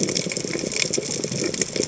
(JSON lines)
{"label": "biophony, chatter", "recorder": "HydroMoth"}